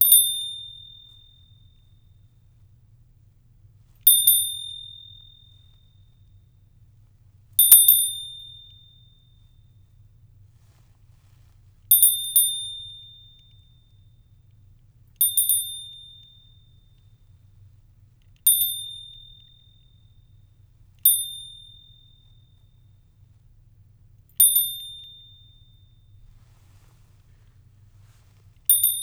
Are there animal noises made?
no